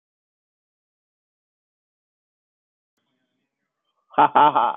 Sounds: Laughter